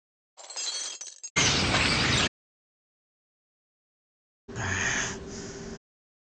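At 0.4 seconds, glass shatters. Then, at 1.4 seconds, a bird is heard. Finally, at 4.5 seconds, breathing is audible.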